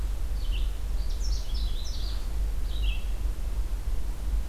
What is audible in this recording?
Red-eyed Vireo, Canada Warbler